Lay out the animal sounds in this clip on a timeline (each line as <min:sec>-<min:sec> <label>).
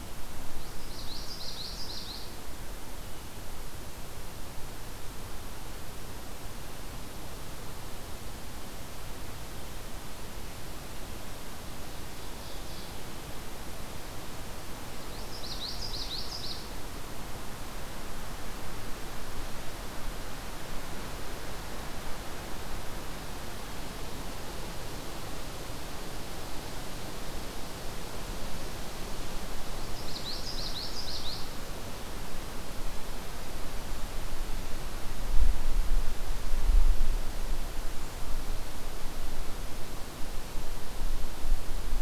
0:00.6-0:02.3 Common Yellowthroat (Geothlypis trichas)
0:12.0-0:13.1 Ovenbird (Seiurus aurocapilla)
0:15.0-0:16.7 Common Yellowthroat (Geothlypis trichas)
0:29.8-0:31.5 Common Yellowthroat (Geothlypis trichas)